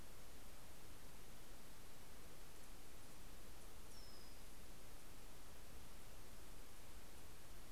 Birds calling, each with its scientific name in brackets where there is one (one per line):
Brown-headed Cowbird (Molothrus ater)